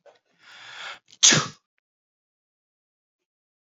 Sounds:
Sneeze